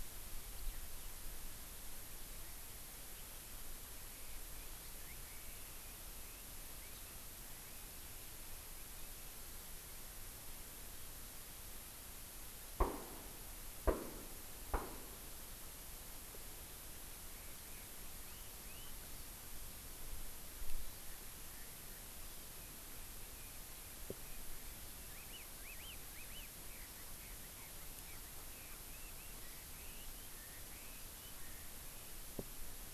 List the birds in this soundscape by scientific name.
Alauda arvensis, Chasiempis sandwichensis